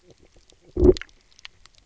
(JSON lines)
{"label": "biophony, knock croak", "recorder": "SoundTrap 300"}